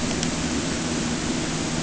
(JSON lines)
{"label": "anthrophony, boat engine", "recorder": "HydroMoth"}